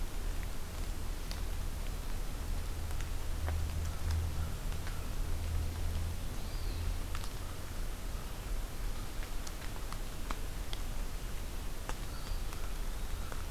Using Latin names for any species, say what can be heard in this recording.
Contopus virens, Corvus brachyrhynchos